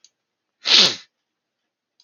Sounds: Sniff